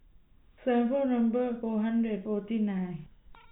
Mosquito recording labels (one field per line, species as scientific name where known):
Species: no mosquito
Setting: cup